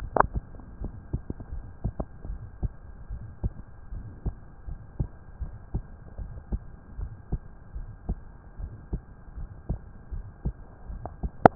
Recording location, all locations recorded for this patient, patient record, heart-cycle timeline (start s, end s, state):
tricuspid valve (TV)
aortic valve (AV)+pulmonary valve (PV)+tricuspid valve (TV)+mitral valve (MV)
#Age: Adolescent
#Sex: Male
#Height: 144.0 cm
#Weight: 41.3 kg
#Pregnancy status: False
#Murmur: Present
#Murmur locations: tricuspid valve (TV)
#Most audible location: tricuspid valve (TV)
#Systolic murmur timing: Early-systolic
#Systolic murmur shape: Plateau
#Systolic murmur grading: I/VI
#Systolic murmur pitch: Low
#Systolic murmur quality: Harsh
#Diastolic murmur timing: nan
#Diastolic murmur shape: nan
#Diastolic murmur grading: nan
#Diastolic murmur pitch: nan
#Diastolic murmur quality: nan
#Outcome: Abnormal
#Campaign: 2015 screening campaign
0.00	3.06	unannotated
3.06	3.28	S1
3.28	3.41	systole
3.41	3.56	S2
3.56	3.91	diastole
3.91	4.06	S1
4.06	4.24	systole
4.24	4.36	S2
4.36	4.68	diastole
4.68	4.80	S1
4.80	4.96	systole
4.96	5.08	S2
5.08	5.40	diastole
5.40	5.54	S1
5.54	5.72	systole
5.72	5.86	S2
5.86	6.20	diastole
6.20	6.32	S1
6.32	6.50	systole
6.50	6.62	S2
6.62	6.96	diastole
6.96	7.10	S1
7.10	7.32	systole
7.32	7.42	S2
7.42	7.74	diastole
7.74	7.88	S1
7.88	8.08	systole
8.08	8.22	S2
8.22	8.60	diastole
8.60	8.74	S1
8.74	8.92	systole
8.92	9.02	S2
9.02	9.36	diastole
9.36	9.48	S1
9.48	9.66	systole
9.66	9.80	S2
9.80	10.12	diastole
10.12	10.26	S1
10.26	10.44	systole
10.44	10.56	S2
10.56	10.88	diastole
10.88	11.02	S1
11.02	11.55	unannotated